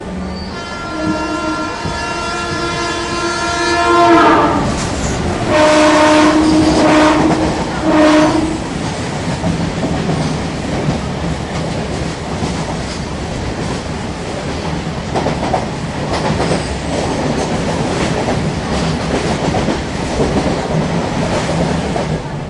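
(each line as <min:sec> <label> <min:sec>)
0:00.0 A train horn blasts at various intensities while passing by. 0:08.8
0:08.9 A train passes by with a characteristic rhythmic rumble from the heavy cars. 0:22.5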